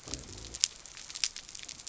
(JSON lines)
{"label": "biophony", "recorder": "SoundTrap 300"}